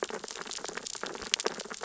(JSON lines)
{"label": "biophony, sea urchins (Echinidae)", "recorder": "SoundTrap 600 or HydroMoth"}